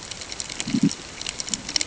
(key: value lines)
label: ambient
recorder: HydroMoth